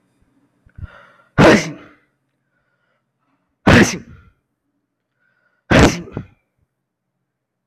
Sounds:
Sneeze